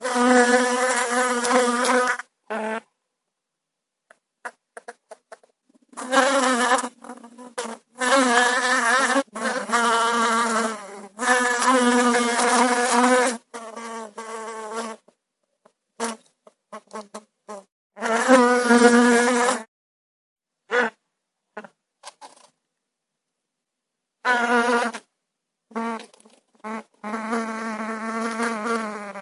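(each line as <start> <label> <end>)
0.0 A bee buzzes continuously while flying. 2.2
6.0 A bee buzzes intermittently while flying inside a soundproofed studio. 15.2
18.0 A single bee buzzes and flies briefly. 19.6
24.2 A single bee buzzes and flies briefly. 25.0
27.0 A single bee buzzes while flying. 29.2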